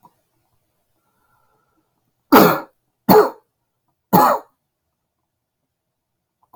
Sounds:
Cough